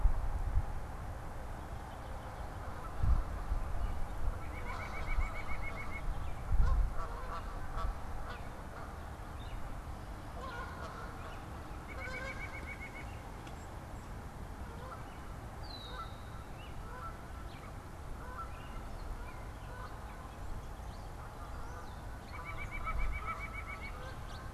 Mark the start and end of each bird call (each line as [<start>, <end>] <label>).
[4.25, 6.05] White-breasted Nuthatch (Sitta carolinensis)
[6.45, 24.54] Canada Goose (Branta canadensis)
[9.05, 11.65] Gray Catbird (Dumetella carolinensis)
[11.75, 13.35] White-breasted Nuthatch (Sitta carolinensis)
[15.45, 16.45] Red-winged Blackbird (Agelaius phoeniceus)
[22.05, 24.15] White-breasted Nuthatch (Sitta carolinensis)
[23.75, 24.54] House Finch (Haemorhous mexicanus)